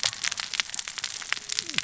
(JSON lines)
{"label": "biophony, cascading saw", "recorder": "SoundTrap 600 or HydroMoth"}